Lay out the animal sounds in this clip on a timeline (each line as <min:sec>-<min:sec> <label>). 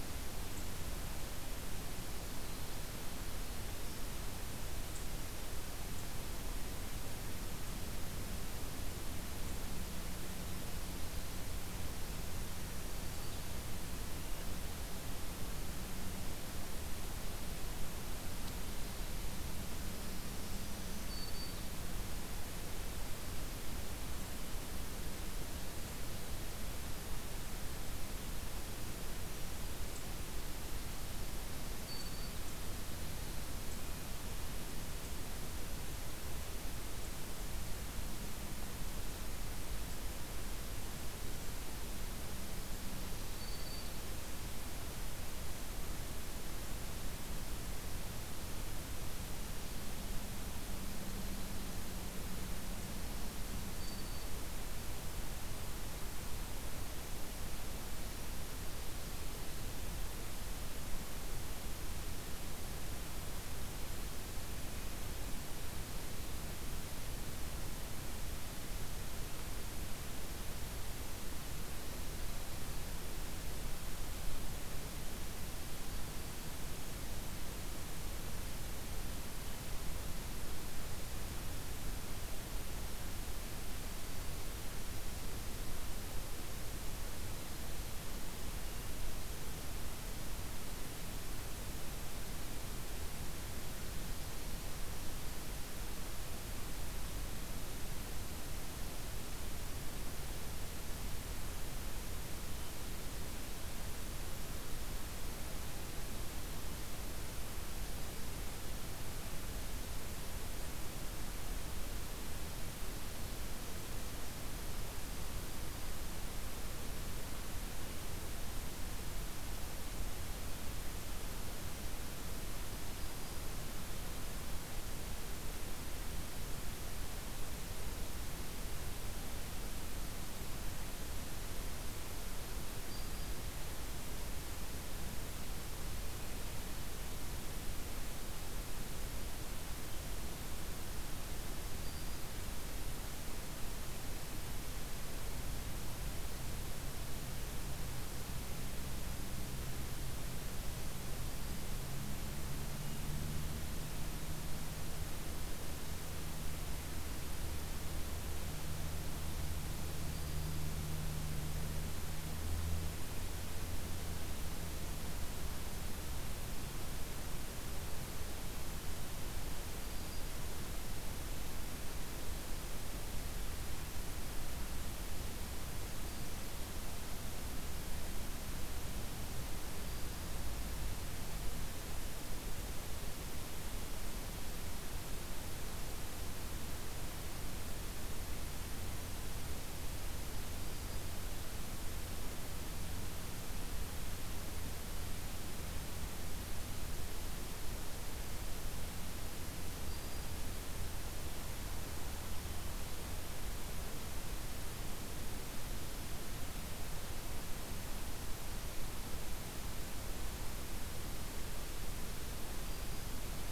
0:12.5-0:13.5 Black-throated Green Warbler (Setophaga virens)
0:19.8-0:21.8 Black-throated Green Warbler (Setophaga virens)
0:31.4-0:32.4 Black-throated Green Warbler (Setophaga virens)
0:42.9-0:44.1 Black-throated Green Warbler (Setophaga virens)
0:53.1-0:54.4 Black-throated Green Warbler (Setophaga virens)
1:23.7-1:24.5 Black-throated Green Warbler (Setophaga virens)
2:02.7-2:03.6 Black-throated Green Warbler (Setophaga virens)
2:12.7-2:13.4 Black-throated Green Warbler (Setophaga virens)
2:21.2-2:22.6 Black-throated Green Warbler (Setophaga virens)
2:39.8-2:40.7 Black-throated Green Warbler (Setophaga virens)
2:49.5-2:50.5 Black-throated Green Warbler (Setophaga virens)
3:10.4-3:11.2 Black-throated Green Warbler (Setophaga virens)
3:19.4-3:20.5 Black-throated Green Warbler (Setophaga virens)
3:32.3-3:33.2 Black-throated Green Warbler (Setophaga virens)